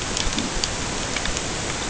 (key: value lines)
label: ambient
recorder: HydroMoth